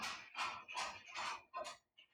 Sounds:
Cough